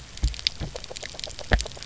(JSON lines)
{"label": "biophony", "recorder": "SoundTrap 300"}